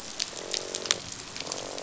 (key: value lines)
label: biophony, croak
recorder: SoundTrap 500